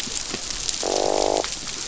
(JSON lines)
{"label": "biophony, croak", "recorder": "SoundTrap 500"}